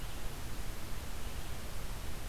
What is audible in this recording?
Red-eyed Vireo